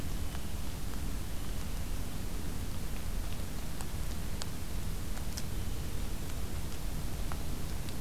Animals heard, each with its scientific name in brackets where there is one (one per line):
Blue Jay (Cyanocitta cristata)